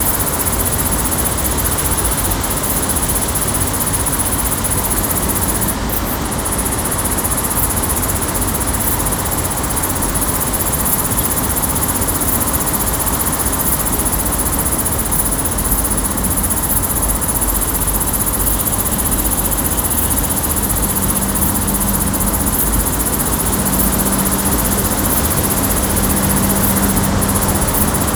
Is there a motor vehicle in the background?
yes